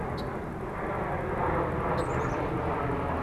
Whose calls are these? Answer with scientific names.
Agelaius phoeniceus, Poecile atricapillus